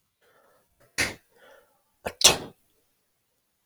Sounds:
Sneeze